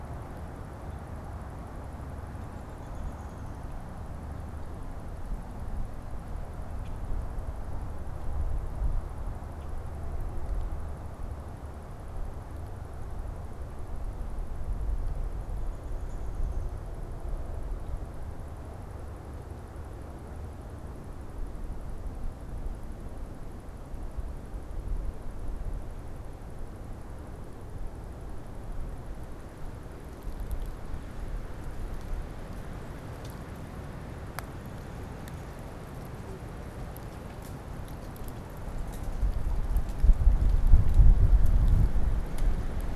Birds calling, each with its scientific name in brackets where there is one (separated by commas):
Downy Woodpecker (Dryobates pubescens), Common Grackle (Quiscalus quiscula)